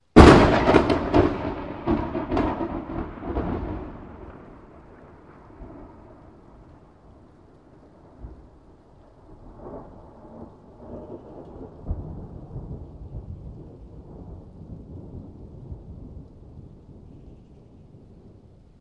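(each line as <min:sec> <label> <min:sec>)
0:00.0 Soft wind is blowing. 0:18.8
0:00.1 A sharp, loud thunderclap followed by an echoing sound. 0:04.0
0:09.3 A soft, low rumble of distant thunder with its echo. 0:17.6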